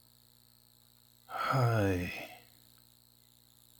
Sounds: Sigh